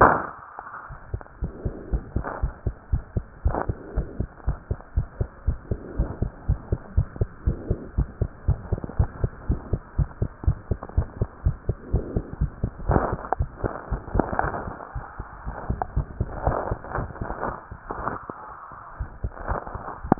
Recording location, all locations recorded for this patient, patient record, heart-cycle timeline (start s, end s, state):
pulmonary valve (PV)
aortic valve (AV)+pulmonary valve (PV)+tricuspid valve (TV)+mitral valve (MV)
#Age: Child
#Sex: Male
#Height: 102.0 cm
#Weight: 18.4 kg
#Pregnancy status: False
#Murmur: Absent
#Murmur locations: nan
#Most audible location: nan
#Systolic murmur timing: nan
#Systolic murmur shape: nan
#Systolic murmur grading: nan
#Systolic murmur pitch: nan
#Systolic murmur quality: nan
#Diastolic murmur timing: nan
#Diastolic murmur shape: nan
#Diastolic murmur grading: nan
#Diastolic murmur pitch: nan
#Diastolic murmur quality: nan
#Outcome: Normal
#Campaign: 2015 screening campaign
0.00	1.52	unannotated
1.52	1.62	systole
1.62	1.74	S2
1.74	1.90	diastole
1.90	2.04	S1
2.04	2.14	systole
2.14	2.24	S2
2.24	2.40	diastole
2.40	2.54	S1
2.54	2.62	systole
2.62	2.74	S2
2.74	2.88	diastole
2.88	3.04	S1
3.04	3.12	systole
3.12	3.24	S2
3.24	3.40	diastole
3.40	3.56	S1
3.56	3.66	systole
3.66	3.76	S2
3.76	3.94	diastole
3.94	4.08	S1
4.08	4.18	systole
4.18	4.28	S2
4.28	4.46	diastole
4.46	4.58	S1
4.58	4.70	systole
4.70	4.78	S2
4.78	4.92	diastole
4.92	5.08	S1
5.08	5.16	systole
5.16	5.28	S2
5.28	5.44	diastole
5.44	5.58	S1
5.58	5.70	systole
5.70	5.82	S2
5.82	5.96	diastole
5.96	6.10	S1
6.10	6.20	systole
6.20	6.32	S2
6.32	6.46	diastole
6.46	6.60	S1
6.60	6.68	systole
6.68	6.80	S2
6.80	6.96	diastole
6.96	7.08	S1
7.08	7.18	systole
7.18	7.30	S2
7.30	7.44	diastole
7.44	7.58	S1
7.58	7.68	systole
7.68	7.78	S2
7.78	7.94	diastole
7.94	8.10	S1
8.10	8.20	systole
8.20	8.30	S2
8.30	8.44	diastole
8.44	8.60	S1
8.60	8.70	systole
8.70	8.82	S2
8.82	8.98	diastole
8.98	9.12	S1
9.12	9.22	systole
9.22	9.32	S2
9.32	9.48	diastole
9.48	9.62	S1
9.62	9.72	systole
9.72	9.82	S2
9.82	9.98	diastole
9.98	10.10	S1
10.10	10.20	systole
10.20	10.30	S2
10.30	10.44	diastole
10.44	10.60	S1
10.60	10.70	systole
10.70	10.80	S2
10.80	10.94	diastole
10.94	11.10	S1
11.10	11.18	systole
11.18	11.28	S2
11.28	11.42	diastole
11.42	11.58	S1
11.58	11.68	systole
11.68	11.78	S2
11.78	11.92	diastole
11.92	12.06	S1
12.06	12.14	systole
12.14	12.24	S2
12.24	12.40	diastole
12.40	12.52	S1
12.52	12.62	systole
12.62	12.72	S2
12.72	12.80	diastole
12.80	20.19	unannotated